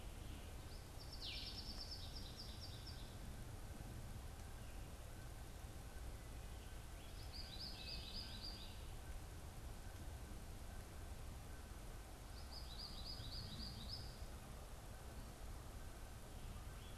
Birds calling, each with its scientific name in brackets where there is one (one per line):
Blue-headed Vireo (Vireo solitarius)
American Goldfinch (Spinus tristis)